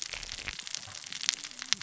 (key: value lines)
label: biophony, cascading saw
recorder: SoundTrap 600 or HydroMoth